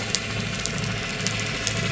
{"label": "anthrophony, boat engine", "recorder": "SoundTrap 300"}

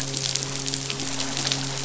{"label": "biophony, midshipman", "recorder": "SoundTrap 500"}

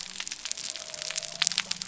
{"label": "biophony", "recorder": "SoundTrap 300"}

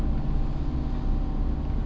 {"label": "anthrophony, boat engine", "recorder": "SoundTrap 300"}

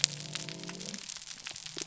{"label": "biophony", "recorder": "SoundTrap 300"}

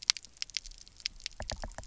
{"label": "biophony, knock", "recorder": "SoundTrap 300"}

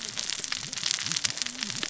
{"label": "biophony, cascading saw", "recorder": "SoundTrap 600 or HydroMoth"}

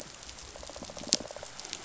{"label": "biophony, pulse", "recorder": "SoundTrap 500"}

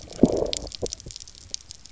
{"label": "biophony, low growl", "recorder": "SoundTrap 300"}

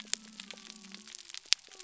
{"label": "biophony", "recorder": "SoundTrap 300"}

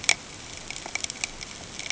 {"label": "ambient", "recorder": "HydroMoth"}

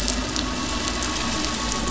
{"label": "anthrophony, boat engine", "recorder": "SoundTrap 500"}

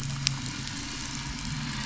{"label": "anthrophony, boat engine", "recorder": "SoundTrap 500"}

